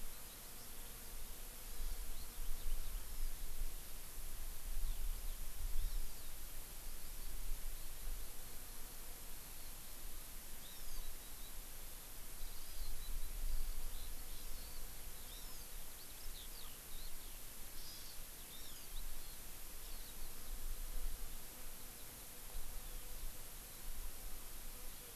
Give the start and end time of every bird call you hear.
[0.00, 3.35] Eurasian Skylark (Alauda arvensis)
[1.55, 2.05] Hawaii Amakihi (Chlorodrepanis virens)
[4.75, 23.95] Eurasian Skylark (Alauda arvensis)
[10.65, 11.05] Hawaii Amakihi (Chlorodrepanis virens)
[12.55, 12.95] Hawaii Amakihi (Chlorodrepanis virens)
[15.25, 15.75] Hawaii Amakihi (Chlorodrepanis virens)
[17.75, 18.15] Hawaii Amakihi (Chlorodrepanis virens)
[18.55, 18.85] Hawaii Amakihi (Chlorodrepanis virens)
[19.15, 19.45] Hawaii Amakihi (Chlorodrepanis virens)

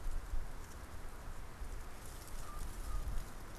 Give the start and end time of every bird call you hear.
[2.20, 3.20] Common Raven (Corvus corax)

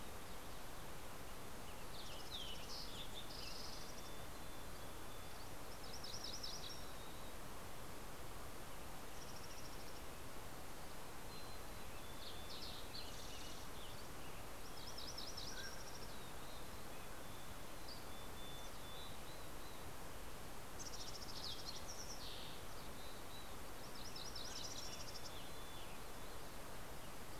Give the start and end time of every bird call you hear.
[0.87, 4.27] Green-tailed Towhee (Pipilo chlorurus)
[0.97, 4.17] Western Tanager (Piranga ludoviciana)
[3.47, 5.37] Mountain Chickadee (Poecile gambeli)
[5.57, 7.27] MacGillivray's Warbler (Geothlypis tolmiei)
[5.97, 7.27] Mountain Chickadee (Poecile gambeli)
[8.47, 10.47] Mountain Chickadee (Poecile gambeli)
[10.97, 12.57] Mountain Chickadee (Poecile gambeli)
[11.27, 14.87] Western Tanager (Piranga ludoviciana)
[11.77, 14.27] Green-tailed Towhee (Pipilo chlorurus)
[14.47, 15.67] MacGillivray's Warbler (Geothlypis tolmiei)
[14.97, 16.07] Mountain Quail (Oreortyx pictus)
[16.17, 22.07] Mountain Chickadee (Poecile gambeli)
[20.17, 22.87] Fox Sparrow (Passerella iliaca)
[22.47, 26.57] Mountain Chickadee (Poecile gambeli)
[23.47, 25.17] MacGillivray's Warbler (Geothlypis tolmiei)

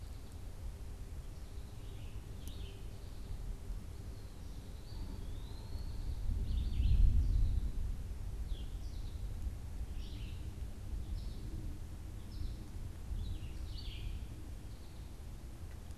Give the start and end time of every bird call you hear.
[1.60, 3.10] Red-eyed Vireo (Vireo olivaceus)
[4.70, 6.20] Eastern Wood-Pewee (Contopus virens)
[7.10, 14.30] American Goldfinch (Spinus tristis)

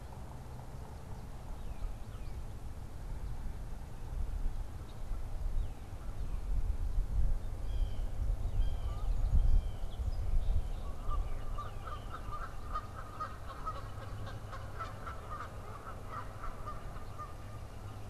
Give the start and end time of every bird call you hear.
[0.00, 2.71] Tufted Titmouse (Baeolophus bicolor)
[7.41, 10.11] Blue Jay (Cyanocitta cristata)
[10.51, 18.00] Canada Goose (Branta canadensis)

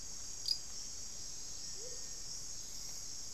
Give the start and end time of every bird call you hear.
[1.54, 2.34] Amazonian Motmot (Momotus momota)
[2.24, 3.33] Hauxwell's Thrush (Turdus hauxwelli)

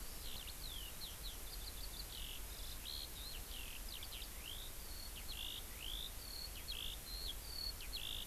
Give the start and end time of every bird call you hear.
[0.20, 8.26] Eurasian Skylark (Alauda arvensis)

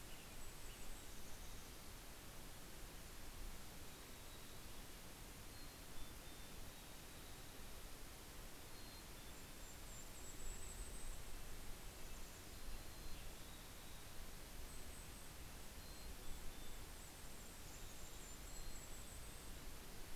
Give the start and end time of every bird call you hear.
[0.00, 1.38] Western Tanager (Piranga ludoviciana)
[0.00, 2.98] Golden-crowned Kinglet (Regulus satrapa)
[0.48, 2.58] Mountain Chickadee (Poecile gambeli)
[3.58, 7.28] Mountain Chickadee (Poecile gambeli)
[8.38, 10.88] Mountain Chickadee (Poecile gambeli)
[8.78, 16.08] Red-breasted Nuthatch (Sitta canadensis)
[9.18, 12.68] Golden-crowned Kinglet (Regulus satrapa)
[12.48, 14.38] Mountain Chickadee (Poecile gambeli)
[13.58, 20.08] Golden-crowned Kinglet (Regulus satrapa)
[15.38, 19.98] Mountain Chickadee (Poecile gambeli)

